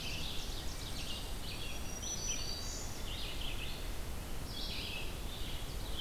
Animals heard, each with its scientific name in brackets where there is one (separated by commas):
Black-throated Green Warbler (Setophaga virens), Ovenbird (Seiurus aurocapilla), Red-eyed Vireo (Vireo olivaceus)